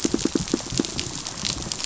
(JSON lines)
{"label": "biophony, pulse", "recorder": "SoundTrap 500"}